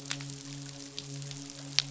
{"label": "biophony, midshipman", "recorder": "SoundTrap 500"}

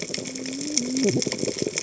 {"label": "biophony, cascading saw", "recorder": "HydroMoth"}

